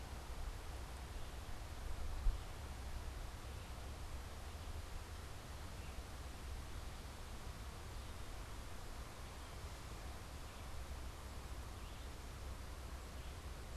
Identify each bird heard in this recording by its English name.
Red-eyed Vireo